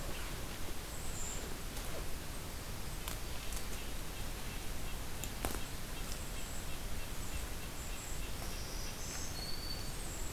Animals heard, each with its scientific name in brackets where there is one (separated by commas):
Black-throated Green Warbler (Setophaga virens), Red-breasted Nuthatch (Sitta canadensis), Golden-crowned Kinglet (Regulus satrapa)